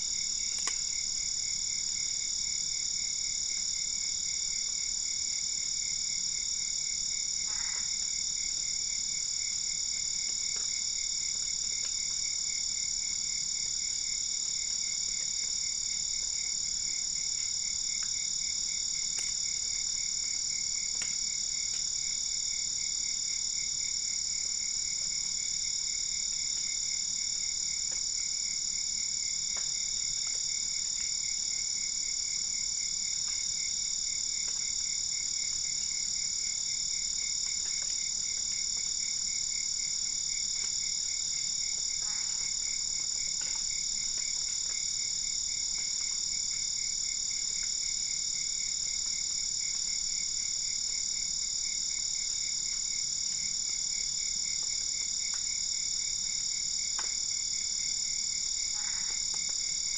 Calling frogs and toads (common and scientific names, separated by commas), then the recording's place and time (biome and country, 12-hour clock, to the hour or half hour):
Boana albopunctata
Cerrado, Brazil, 11pm